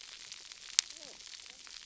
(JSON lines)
{"label": "biophony, cascading saw", "recorder": "SoundTrap 300"}